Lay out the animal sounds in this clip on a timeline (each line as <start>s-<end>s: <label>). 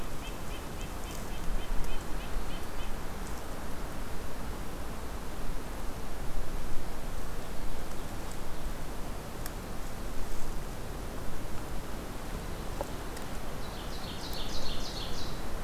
0.0s-3.1s: Red-breasted Nuthatch (Sitta canadensis)
7.1s-8.9s: Ovenbird (Seiurus aurocapilla)
13.4s-15.6s: Ovenbird (Seiurus aurocapilla)